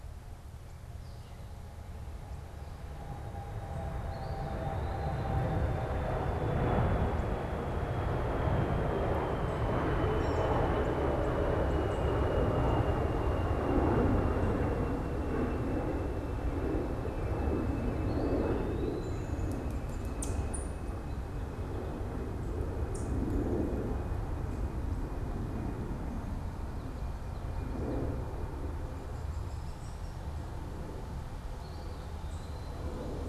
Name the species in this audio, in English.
Eastern Wood-Pewee, American Robin, Ovenbird, Hairy Woodpecker